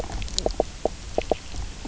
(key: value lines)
label: biophony, knock croak
recorder: SoundTrap 300